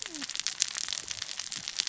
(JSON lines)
{"label": "biophony, cascading saw", "recorder": "SoundTrap 600 or HydroMoth"}